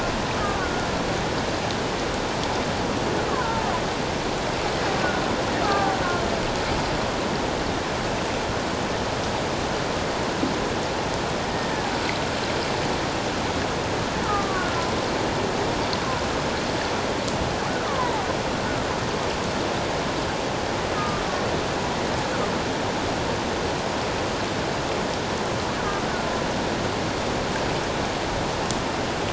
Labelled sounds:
0.4	0.9	killer whale, Bigg's (transient), 1.1 to 1.5 kHz
3.3	3.7	killer whale, Bigg's (transient), 0.84 to 1.3 kHz
5.6	6.0	killer whale, Bigg's (transient), 1.1 to 1.7 kHz
14.3	14.9	killer whale, Bigg's (transient), 1.1 to 1.6 kHz
17.8	18.3	killer whale, Bigg's (transient), 0.78 to 1.4 kHz
21.0	21.2	killer whale, Bigg's (transient), 1.2 to 1.3 kHz

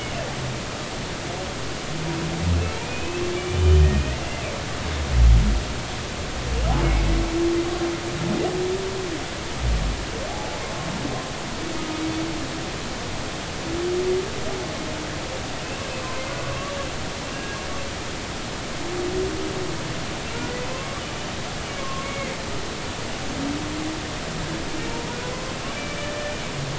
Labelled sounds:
2.7	4.4	humpback whale, 2.2 to 3.1 kHz
10.3	10.6	humpback whale, 0.80 to 0.90 kHz
17.3	17.6	humpback whale, 1.5 to 1.7 kHz
20.3	21.0	humpback whale, 0.99 to 1.5 kHz
21.8	22.3	humpback whale, 1.0 to 2.3 kHz
25.6	26.0	humpback whale, 2.2 to 2.9 kHz

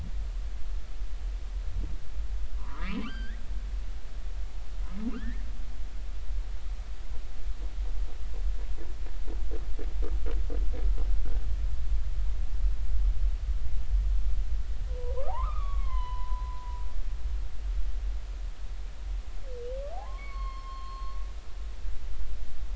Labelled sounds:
2.6	3.4	humpback whale, 0.93 to 4.8 kHz
5.1	5.4	humpback whale, 1.1 to 2.3 kHz
14.9	16.8	humpback whale, 0.80 to 4.4 kHz
19.9	21.2	humpback whale, 0.80 to 4.5 kHz

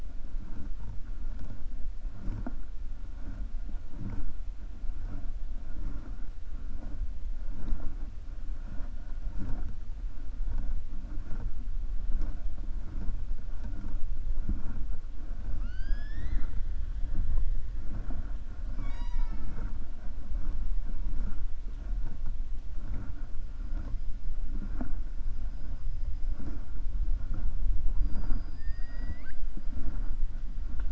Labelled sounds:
15.5	16.6	killer whale, 0.67 to 6.4 kHz

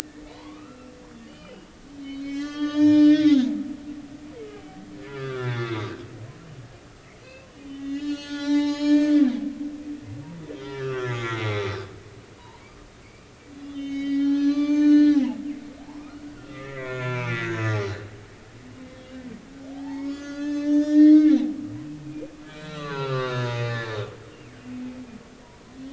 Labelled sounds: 0.3	0.9	humpback whale, 0.86 to 2.8 kHz
1.3	1.7	humpback whale, 2.8 to 3.1 kHz
2.0	3.5	humpback whale, 0.86 to 7.3 kHz
5.1	5.8	humpback whale, 1.1 to 3.6 kHz
7.2	9.8	humpback whale, 0.80 to 7.6 kHz
10.5	11.8	humpback whale, 1.1 to 5.2 kHz
12.3	12.6	humpback whale, 0.86 to 1.1 kHz
13.6	15.3	humpback whale, 0.86 to 6.8 kHz
16.0	18.0	humpback whale, 0.93 to 4.1 kHz
19.7	24.0	humpback whale, 0.80 to 6.9 kHz

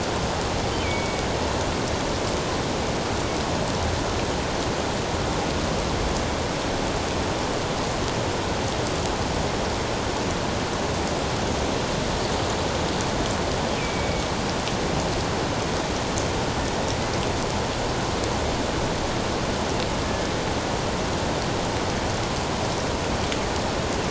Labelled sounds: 0.8	1.3	killer whale, northern resident, G clan, 2.2 to 2.6 kHz
13.8	14.2	killer whale, northern resident, G clan, 2.2 to 2.6 kHz

